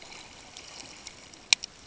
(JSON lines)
{"label": "ambient", "recorder": "HydroMoth"}